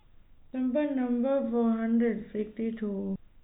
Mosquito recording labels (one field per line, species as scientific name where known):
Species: no mosquito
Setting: cup